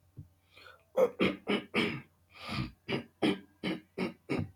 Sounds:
Throat clearing